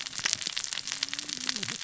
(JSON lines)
{"label": "biophony, cascading saw", "recorder": "SoundTrap 600 or HydroMoth"}